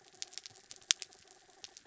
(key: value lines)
label: anthrophony, mechanical
recorder: SoundTrap 300